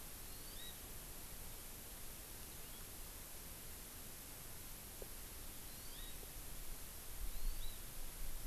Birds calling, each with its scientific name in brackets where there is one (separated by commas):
Hawaii Amakihi (Chlorodrepanis virens)